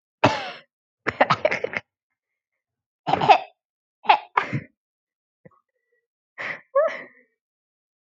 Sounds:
Throat clearing